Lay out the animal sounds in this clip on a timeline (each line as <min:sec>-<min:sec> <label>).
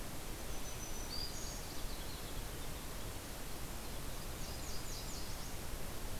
0:00.3-0:01.8 Black-throated Green Warbler (Setophaga virens)
0:04.0-0:05.8 Nashville Warbler (Leiothlypis ruficapilla)